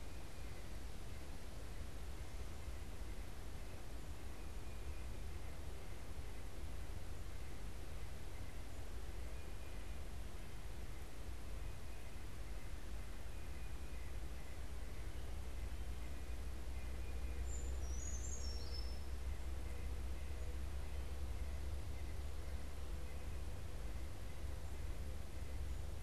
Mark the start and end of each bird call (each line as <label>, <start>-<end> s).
White-breasted Nuthatch (Sitta carolinensis), 0.0-26.0 s
Brown Creeper (Certhia americana), 17.2-19.4 s